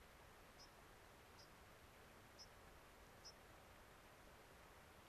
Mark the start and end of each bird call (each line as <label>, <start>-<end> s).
White-crowned Sparrow (Zonotrichia leucophrys), 0.0-5.1 s